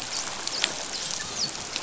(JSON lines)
{"label": "biophony, dolphin", "recorder": "SoundTrap 500"}